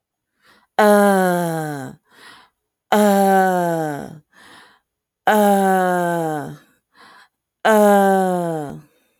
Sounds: Sigh